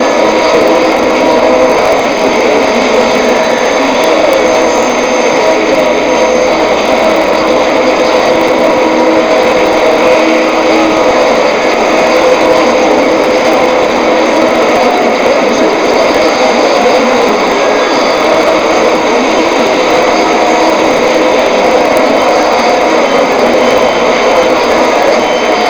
Is the sound nearby?
yes